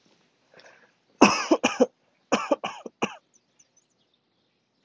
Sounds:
Cough